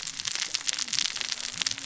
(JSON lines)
{"label": "biophony, cascading saw", "recorder": "SoundTrap 600 or HydroMoth"}